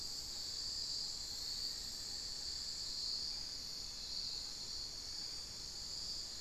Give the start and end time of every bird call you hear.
0.4s-3.1s: Black-faced Antthrush (Formicarius analis)

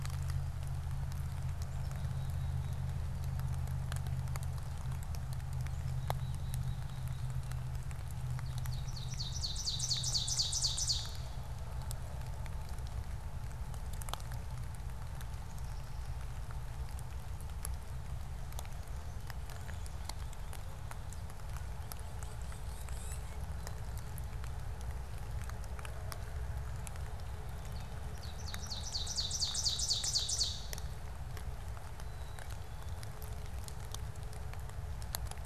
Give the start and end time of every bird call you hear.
1.3s-3.0s: Black-capped Chickadee (Poecile atricapillus)
5.5s-7.6s: Black-capped Chickadee (Poecile atricapillus)
8.1s-11.7s: Ovenbird (Seiurus aurocapilla)
21.4s-24.0s: Tufted Titmouse (Baeolophus bicolor)
27.4s-31.1s: Ovenbird (Seiurus aurocapilla)
31.8s-33.2s: Black-capped Chickadee (Poecile atricapillus)

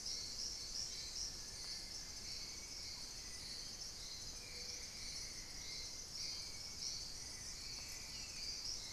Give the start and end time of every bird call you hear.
0.0s-2.1s: unidentified bird
1.4s-8.9s: Hauxwell's Thrush (Turdus hauxwelli)
4.1s-5.7s: Buff-throated Woodcreeper (Xiphorhynchus guttatus)

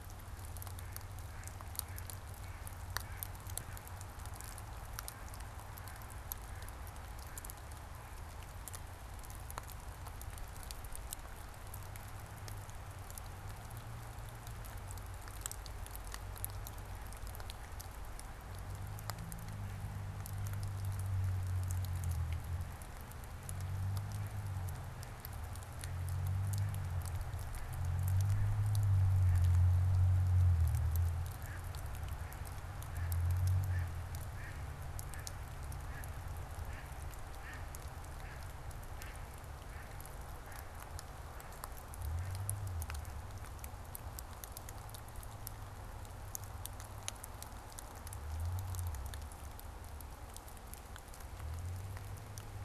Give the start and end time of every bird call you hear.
0.0s-9.1s: Mallard (Anas platyrhynchos)
23.9s-43.6s: Mallard (Anas platyrhynchos)

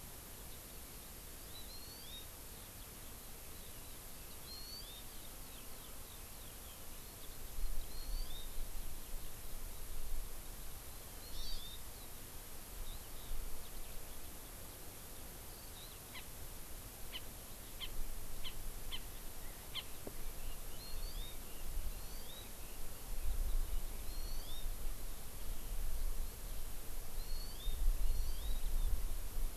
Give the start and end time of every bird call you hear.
0.0s-9.7s: Eurasian Skylark (Alauda arvensis)
1.7s-2.2s: Hawaii Amakihi (Chlorodrepanis virens)
4.4s-5.0s: Hawaii Amakihi (Chlorodrepanis virens)
7.8s-8.4s: Hawaii Amakihi (Chlorodrepanis virens)
11.2s-11.8s: Hawaii Amakihi (Chlorodrepanis virens)
12.8s-14.5s: Eurasian Skylark (Alauda arvensis)
20.1s-23.8s: Red-billed Leiothrix (Leiothrix lutea)
20.7s-21.3s: Hawaii Amakihi (Chlorodrepanis virens)
21.9s-22.4s: Hawaii Amakihi (Chlorodrepanis virens)
24.0s-24.6s: Hawaii Amakihi (Chlorodrepanis virens)
27.1s-27.7s: Hawaii Amakihi (Chlorodrepanis virens)
28.0s-28.6s: Hawaii Amakihi (Chlorodrepanis virens)

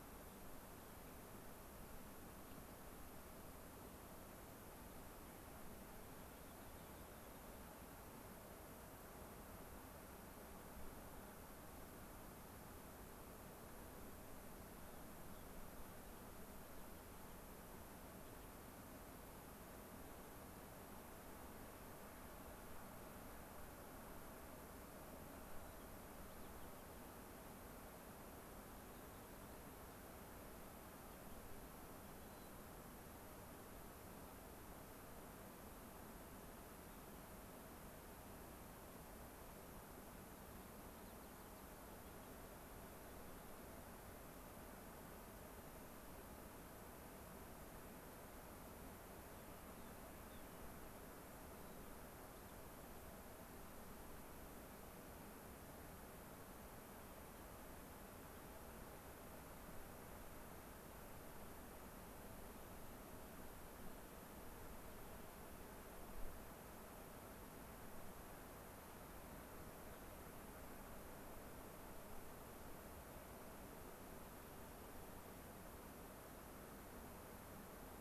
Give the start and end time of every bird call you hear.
6.2s-7.5s: Rock Wren (Salpinctes obsoletus)
25.4s-27.1s: White-crowned Sparrow (Zonotrichia leucophrys)
32.0s-32.6s: White-crowned Sparrow (Zonotrichia leucophrys)
40.9s-41.8s: White-crowned Sparrow (Zonotrichia leucophrys)
49.2s-50.5s: Rock Wren (Salpinctes obsoletus)
51.4s-52.6s: White-crowned Sparrow (Zonotrichia leucophrys)

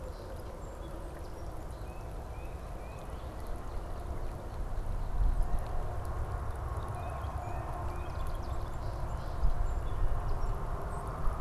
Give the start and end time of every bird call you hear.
0.0s-1.6s: Song Sparrow (Melospiza melodia)
1.6s-3.1s: Tufted Titmouse (Baeolophus bicolor)
6.7s-8.3s: Tufted Titmouse (Baeolophus bicolor)
8.0s-10.5s: Song Sparrow (Melospiza melodia)

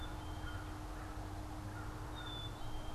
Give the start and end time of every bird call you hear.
0.0s-2.9s: American Crow (Corvus brachyrhynchos)
0.0s-2.9s: Black-capped Chickadee (Poecile atricapillus)

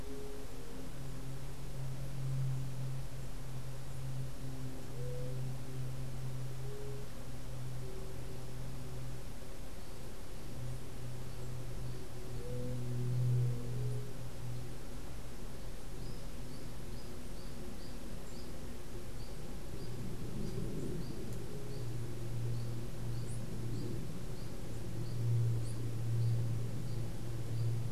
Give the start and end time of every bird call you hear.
0.0s-8.4s: White-tipped Dove (Leptotila verreauxi)
12.3s-14.3s: White-tipped Dove (Leptotila verreauxi)
15.9s-27.9s: unidentified bird

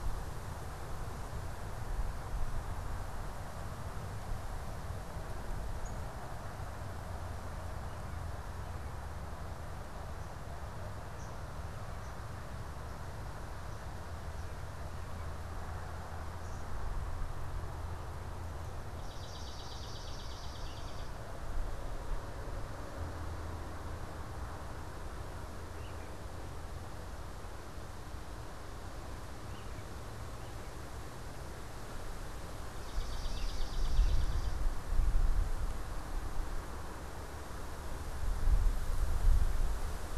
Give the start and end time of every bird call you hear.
5.8s-6.0s: unidentified bird
10.9s-16.8s: unidentified bird
18.9s-21.2s: Swamp Sparrow (Melospiza georgiana)
25.7s-30.9s: American Robin (Turdus migratorius)
32.8s-34.7s: Swamp Sparrow (Melospiza georgiana)

